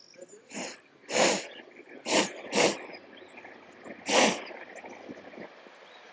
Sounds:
Sniff